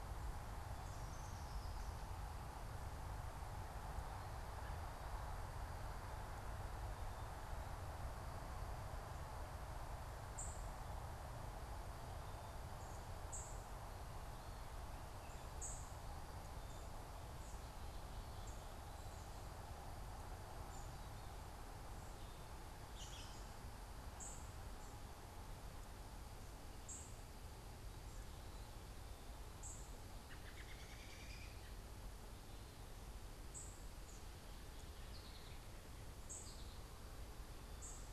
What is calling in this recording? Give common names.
unidentified bird, American Robin, American Goldfinch